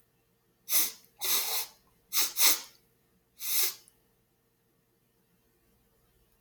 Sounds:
Sniff